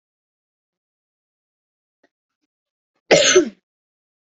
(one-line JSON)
{"expert_labels": [{"quality": "good", "cough_type": "dry", "dyspnea": false, "wheezing": false, "stridor": false, "choking": false, "congestion": false, "nothing": true, "diagnosis": "healthy cough", "severity": "pseudocough/healthy cough"}], "age": 19, "gender": "male", "respiratory_condition": false, "fever_muscle_pain": true, "status": "COVID-19"}